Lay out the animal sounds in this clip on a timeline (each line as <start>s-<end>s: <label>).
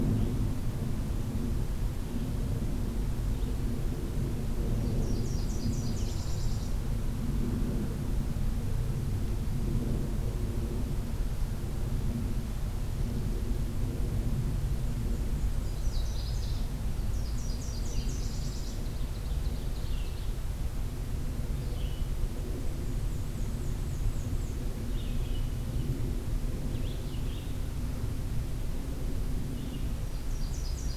0.0s-6.4s: Red-eyed Vireo (Vireo olivaceus)
4.7s-6.9s: Nashville Warbler (Leiothlypis ruficapilla)
14.5s-18.8s: Nashville Warbler (Leiothlypis ruficapilla)
18.5s-20.5s: Ovenbird (Seiurus aurocapilla)
21.4s-30.1s: Red-eyed Vireo (Vireo olivaceus)
22.3s-24.7s: Black-and-white Warbler (Mniotilta varia)
29.9s-31.0s: Nashville Warbler (Leiothlypis ruficapilla)